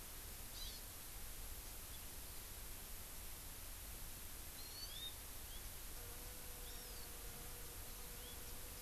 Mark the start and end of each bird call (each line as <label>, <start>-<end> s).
Hawaii Amakihi (Chlorodrepanis virens), 0.5-0.8 s
Hawaii Amakihi (Chlorodrepanis virens), 4.5-5.1 s
Hawaii Amakihi (Chlorodrepanis virens), 6.6-7.0 s